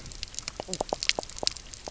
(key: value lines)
label: biophony, knock croak
recorder: SoundTrap 300